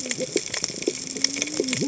{"label": "biophony, cascading saw", "recorder": "HydroMoth"}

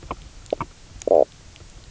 {"label": "biophony, knock croak", "recorder": "SoundTrap 300"}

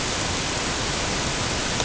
{"label": "ambient", "recorder": "HydroMoth"}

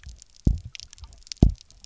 {"label": "biophony, double pulse", "recorder": "SoundTrap 300"}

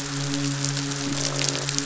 {"label": "biophony, midshipman", "recorder": "SoundTrap 500"}
{"label": "biophony, croak", "recorder": "SoundTrap 500"}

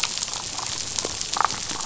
{"label": "biophony, damselfish", "recorder": "SoundTrap 500"}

